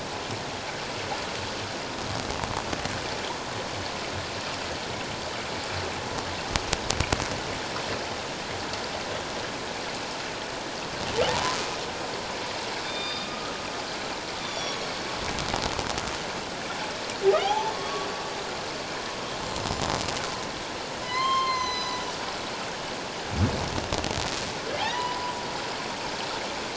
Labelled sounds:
11.3	11.6	humpback whale, 0.78 to 1.1 kHz
12.8	13.5	humpback whale, 1.2 to 5.0 kHz
14.4	14.8	humpback whale, 3.3 to 6.0 kHz
17.4	18.1	humpback whale, 0.78 to 3.5 kHz
19.4	19.7	humpback whale, 7.2 to 7.3 kHz
21.0	22.0	humpback whale, 0.94 to 6.4 kHz
24.8	25.4	humpback whale, 0.78 to 5.0 kHz

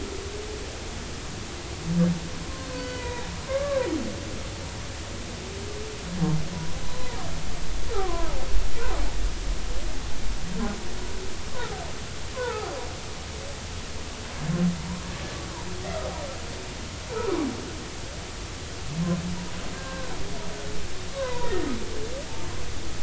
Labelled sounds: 2.4	3.9	humpback whale, 0.93 to 3.9 kHz
6.8	8.3	humpback whale, 0.90 to 4.1 kHz
12.3	12.7	humpback whale, 0.80 to 1.6 kHz
19.7	20.1	humpback whale, 0.99 to 1.7 kHz
21.1	21.7	humpback whale, 0.90 to 2.0 kHz

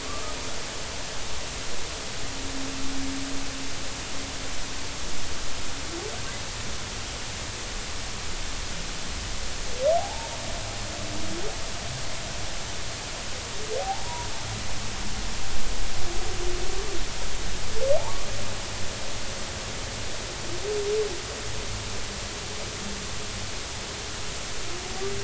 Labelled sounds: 0.0	0.4	humpback whale, 1.1 to 1.3 kHz
9.9	10.3	humpback whale, 0.80 to 0.96 kHz
13.8	14.3	humpback whale, 0.80 to 1.0 kHz
18.0	18.3	humpback whale, 0.80 to 1.2 kHz

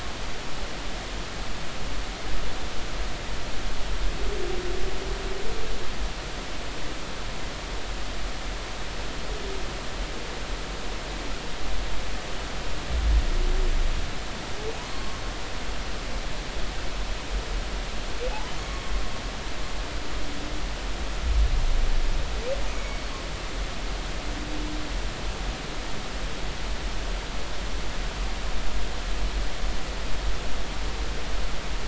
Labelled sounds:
14.9	15.2	humpback whale, 1.1 to 4.4 kHz
18.6	18.8	humpback whale, 1.1 to 1.2 kHz
22.7	23.0	humpback whale, 2.2 to 2.3 kHz

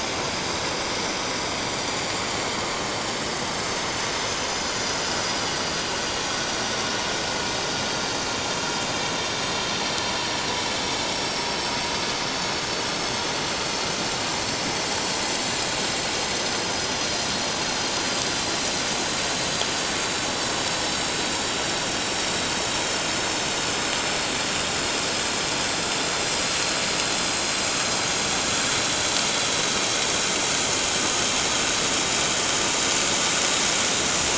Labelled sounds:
1.9	2.1	vessel noise, 4.4 to 4.6 kHz
4.5	5.5	vessel noise, 5.8 to 7.1 kHz
6.3	6.7	vessel noise, 5.6 to 5.8 kHz
9.3	9.6	vessel noise, 7.7 to 7.8 kHz
11.3	12.7	vessel noise, 4.4 to 6.7 kHz
13.4	13.6	vessel noise, 7.2 to 7.4 kHz
15.8	17.0	vessel noise, 6.0 to 7.7 kHz
17.4	17.9	vessel noise, 4.5 to 6.8 kHz
19.4	20.3	vessel noise, 6.3 to 6.6 kHz
20.7	21.0	vessel noise, 5.2 to 5.4 kHz
27.2	27.6	vessel noise, 6.5 to 6.7 kHz

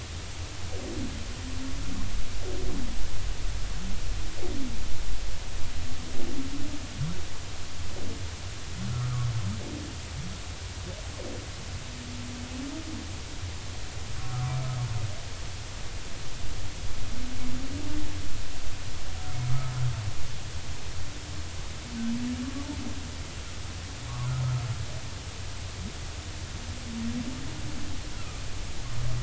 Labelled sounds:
8.9	9.2	humpback whale, 1.2 to 1.4 kHz
24.1	24.3	humpback whale, 0.93 to 1.2 kHz
28.1	28.4	humpback whale, 1.2 to 1.5 kHz

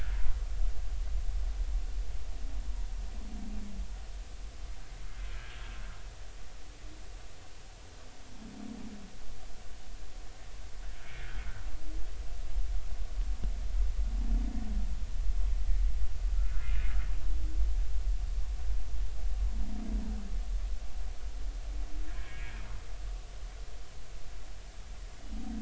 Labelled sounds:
11.0	11.3	humpback whale, 2.1 to 2.4 kHz
16.3	16.8	humpback whale, 1.2 to 1.5 kHz
22.1	22.6	humpback whale, 1.5 to 2.5 kHz

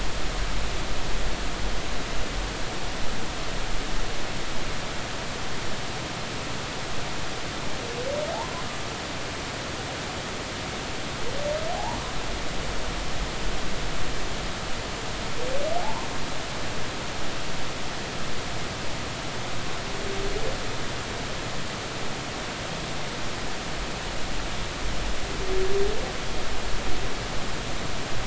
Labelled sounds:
11.7	12.0	humpback whale, 0.80 to 1.0 kHz
15.8	16.1	humpback whale, 0.80 to 1.1 kHz

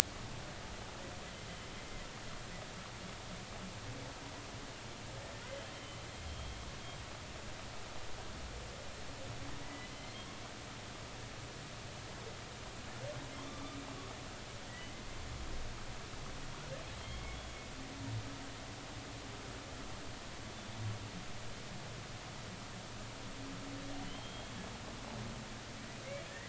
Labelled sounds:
5.5	6.6	humpback whale, 3.0 to 3.3 kHz
9.6	10.2	humpback whale, 1.9 to 2.2 kHz
13.5	13.8	humpback whale, 1.1 to 1.2 kHz
14.6	14.9	humpback whale, 1.8 to 2.0 kHz
16.6	17.4	humpback whale, 1.3 to 3.4 kHz
24.0	24.5	humpback whale, 2.9 to 3.3 kHz

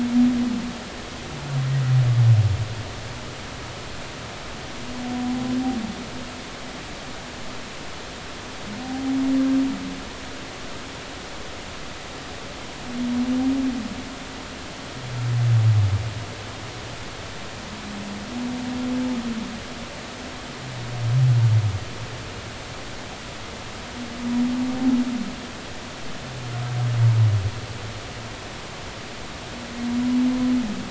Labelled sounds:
8.8	9.2	humpback whale, 0.80 to 0.83 kHz

